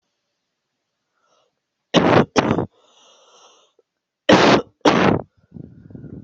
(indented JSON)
{
  "expert_labels": [
    {
      "quality": "poor",
      "cough_type": "unknown",
      "dyspnea": false,
      "wheezing": false,
      "stridor": false,
      "choking": false,
      "congestion": false,
      "nothing": false,
      "severity": "unknown"
    }
  ],
  "age": 33,
  "gender": "female",
  "respiratory_condition": false,
  "fever_muscle_pain": false,
  "status": "symptomatic"
}